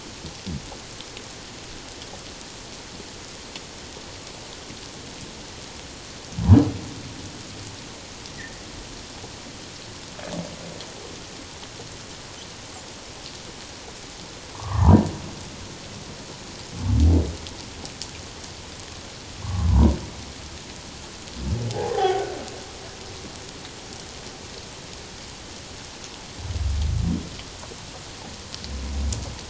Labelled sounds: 14.5	15.0	humpback whale, 0.81 to 1.3 kHz
19.4	19.9	humpback whale, 0.91 to 1.2 kHz
21.7	22.3	humpback whale, 0.78 to 1.6 kHz

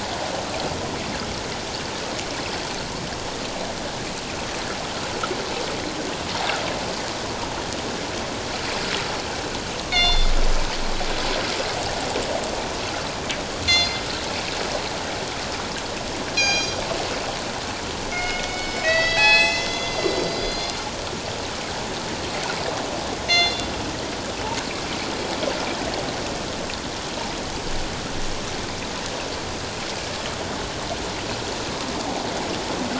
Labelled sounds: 9.9	10.3	killer whale, northern resident, G clan, call N24ii, 2.0 to 5.8 kHz
13.6	14.0	killer whale, northern resident, G clan, call N24ii, 2.0 to 7.0 kHz
16.4	16.8	killer whale, northern resident, G clan, call N24ii, 2.3 to 7.3 kHz
18.1	20.8	killer whale, northern resident, G clan, call N24ii, 0.78 to 7.9 kHz
23.3	23.7	killer whale, northern resident, G clan, call N24ii, 1.9 to 6.3 kHz

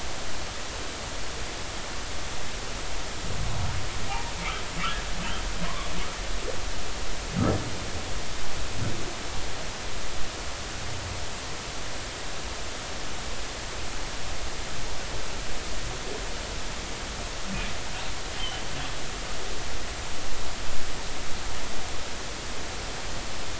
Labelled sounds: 4.1	4.3	humpback whale, 0.80 to 0.99 kHz
5.6	5.9	humpback whale, 0.96 to 1.2 kHz
18.4	18.6	humpback whale, 2.9 to 3.2 kHz

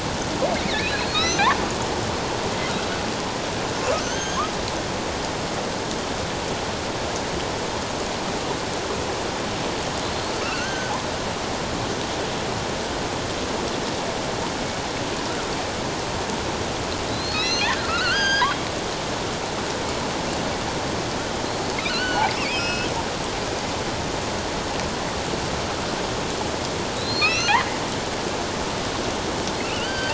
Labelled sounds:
0.7	1.4	killer whale, offshore, 1.2 to 6.3 kHz
3.9	4.4	killer whale, offshore, 1.4 to 6.5 kHz
10.0	10.9	killer whale, offshore, 1.3 to 4.4 kHz
17.1	18.6	killer whale, offshore, 1.2 to 6.5 kHz
21.7	22.9	killer whale, offshore, 1.3 to 5.3 kHz
27.0	27.6	killer whale, offshore, 1.2 to 6.3 kHz
29.6	30.1	killer whale, offshore, 1.3 to 4.8 kHz

